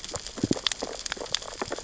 {"label": "biophony, sea urchins (Echinidae)", "recorder": "SoundTrap 600 or HydroMoth"}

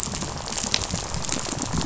{"label": "biophony, rattle", "recorder": "SoundTrap 500"}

